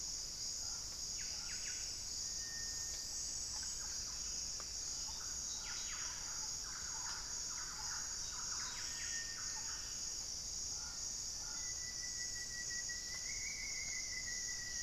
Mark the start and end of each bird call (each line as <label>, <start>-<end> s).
Buff-breasted Wren (Cantorchilus leucotis), 0.5-9.8 s
Thrush-like Wren (Campylorhynchus turdinus), 3.3-11.7 s
Rufous-fronted Antthrush (Formicarius rufifrons), 11.2-14.8 s